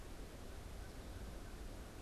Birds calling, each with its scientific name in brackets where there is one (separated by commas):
American Crow (Corvus brachyrhynchos)